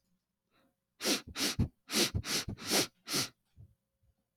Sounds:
Sniff